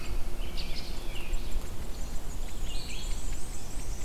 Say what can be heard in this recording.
American Robin, Red-eyed Vireo, Black-and-white Warbler